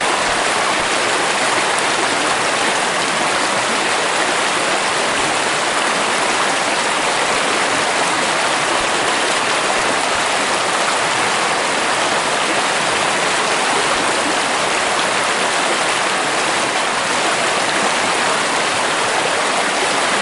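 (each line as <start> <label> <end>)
0.0 Water running in a river, producing a steady trickle with irregular splashing sounds. 20.2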